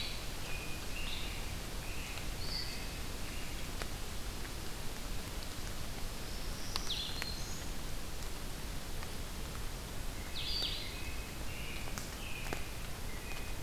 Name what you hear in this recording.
Blue-headed Vireo, American Robin, Black-throated Green Warbler